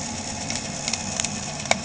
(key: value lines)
label: anthrophony, boat engine
recorder: HydroMoth